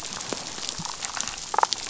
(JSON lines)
{"label": "biophony, damselfish", "recorder": "SoundTrap 500"}